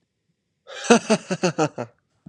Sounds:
Laughter